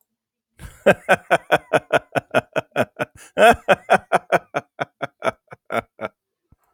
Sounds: Laughter